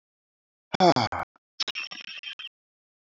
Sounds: Sigh